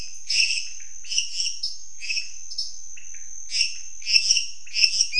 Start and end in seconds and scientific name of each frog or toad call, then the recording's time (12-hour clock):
0.0	5.1	Dendropsophus minutus
0.0	5.1	Leptodactylus podicipinus
1.6	1.9	Dendropsophus nanus
2.5	3.0	Dendropsophus nanus
9:15pm